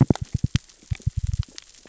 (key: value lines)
label: biophony, knock
recorder: SoundTrap 600 or HydroMoth